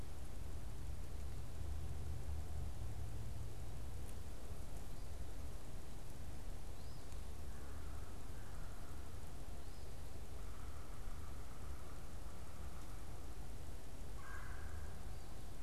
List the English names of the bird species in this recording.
Eastern Phoebe, unidentified bird, Red-bellied Woodpecker